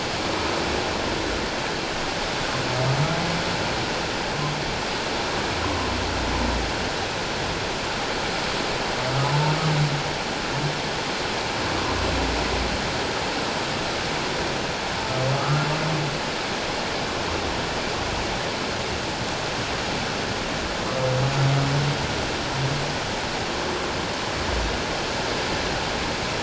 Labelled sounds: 15.4	15.7	humpback whale, 1.1 to 1.4 kHz

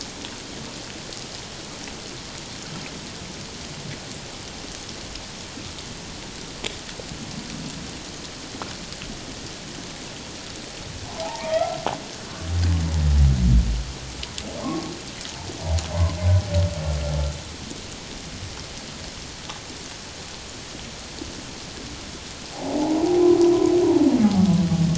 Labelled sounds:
11.2	11.8	humpback whale, 0.78 to 1.4 kHz
14.6	14.9	humpback whale, 1.0 to 1.2 kHz
22.5	23.0	humpback whale, 0.78 to 0.97 kHz

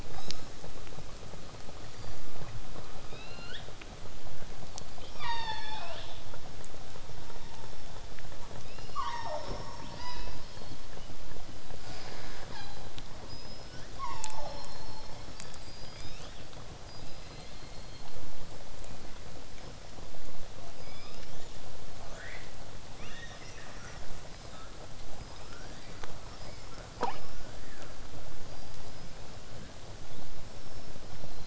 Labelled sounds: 0.1	0.5	killer whale, southern resident, 0.98 to 8.0 kHz
1.9	2.6	killer whale, southern resident, 2.3 to 7.3 kHz
3.0	3.6	killer whale, southern resident, L pod, call S19, 1.1 to 5.4 kHz
4.7	6.2	killer whale, southern resident, call S36, 0.43 to 8.0 kHz
5.6	6.2	killer whale, southern resident, L pod, call S19, 0.67 to 4.0 kHz
7.0	8.1	killer whale, southern resident, 0.47 to 1.3 kHz
8.6	9.7	killer whale, southern resident, 0.14 to 7.7 kHz
11.8	12.9	killer whale, southern resident, call S37ii, 0.07 to 7.5 kHz
13.3	13.9	killer whale, southern resident, L pod, call S19, 1.3 to 8.0 kHz
13.9	14.7	killer whale, southern resident, call S36, 0.45 to 7.9 kHz
15.4	16.5	killer whale, southern resident, L pod, call S19, 2.2 to 8.0 kHz
16.9	18.3	killer whale, southern resident, 2.0 to 5.4 kHz
20.8	21.8	killer whale, southern resident, L pod, call S19, 1.0 to 8.0 kHz
22.0	22.5	killer whale, southern resident, 0.94 to 7.8 kHz
25.1	26.8	killer whale, southern resident, L pod, call S19, 0.36 to 5.9 kHz
27.2	28.0	killer whale, southern resident, L pod, call S19, 0.94 to 7.7 kHz
28.5	29.8	killer whale, southern resident, L pod, call S19, 1.1 to 5.8 kHz
30.1	31.1	killer whale, southern resident, 3.0 to 5.6 kHz

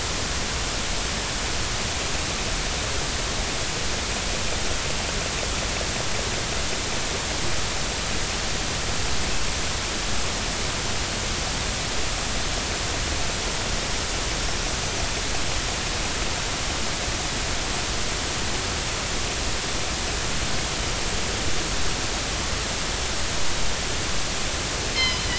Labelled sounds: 24.9	25.3	killer whale, northern resident, G clan, 3.0 to 5.3 kHz

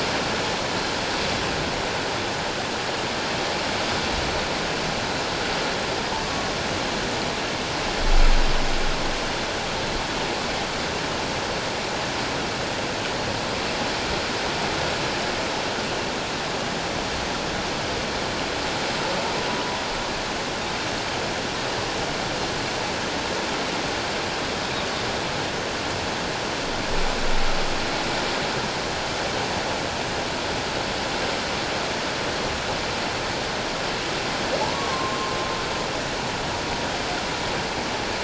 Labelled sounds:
6.2	6.5	humpback whale, 1.1 to 1.2 kHz
34.7	35.4	humpback whale, 0.97 to 1.2 kHz

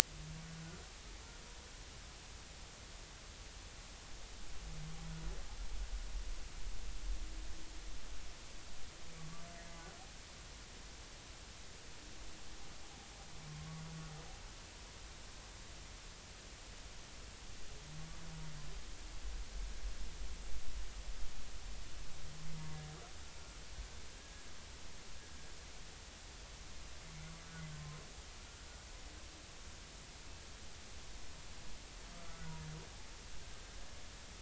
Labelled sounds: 9.5	9.8	humpback whale, 2.0 to 2.1 kHz
24.2	24.5	humpback whale, 1.6 to 1.7 kHz
27.8	28.0	humpback whale, 0.99 to 1.1 kHz
32.2	32.6	humpback whale, 1.3 to 1.5 kHz

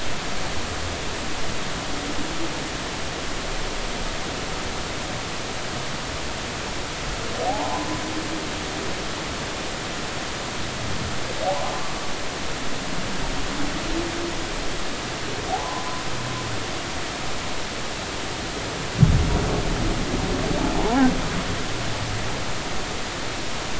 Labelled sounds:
7.5	7.9	humpback whale, 0.80 to 1.1 kHz
11.4	11.7	humpback whale, 0.80 to 1.1 kHz
15.5	16.0	humpback whale, 0.80 to 1.2 kHz
20.8	21.0	humpback whale, 0.80 to 1.1 kHz

